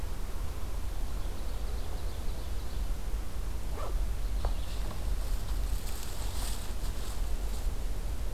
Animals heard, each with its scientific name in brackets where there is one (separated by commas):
Ovenbird (Seiurus aurocapilla)